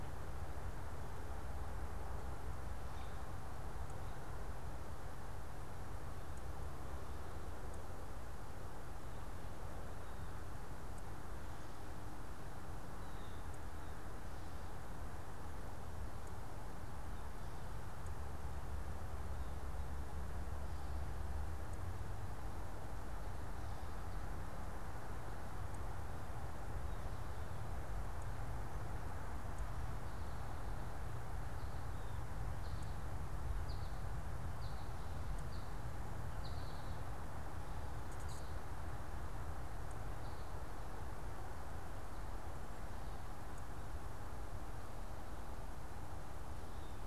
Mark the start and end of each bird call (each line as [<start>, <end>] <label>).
[0.00, 3.15] American Robin (Turdus migratorius)
[12.85, 13.65] Blue Jay (Cyanocitta cristata)
[33.35, 38.55] American Goldfinch (Spinus tristis)